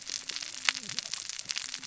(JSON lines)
{"label": "biophony, cascading saw", "recorder": "SoundTrap 600 or HydroMoth"}